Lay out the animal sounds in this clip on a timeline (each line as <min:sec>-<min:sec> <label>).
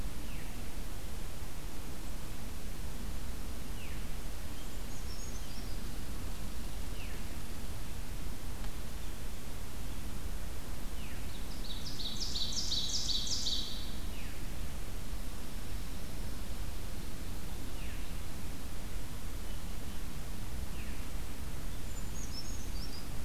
0:00.2-0:00.6 Veery (Catharus fuscescens)
0:03.6-0:04.1 Veery (Catharus fuscescens)
0:04.3-0:06.5 Brown Creeper (Certhia americana)
0:06.9-0:07.3 Veery (Catharus fuscescens)
0:11.0-0:14.0 Ovenbird (Seiurus aurocapilla)
0:11.0-0:11.3 Veery (Catharus fuscescens)
0:17.5-0:18.0 Veery (Catharus fuscescens)
0:20.5-0:20.9 Veery (Catharus fuscescens)
0:21.7-0:23.1 Brown Creeper (Certhia americana)